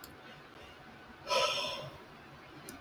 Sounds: Sigh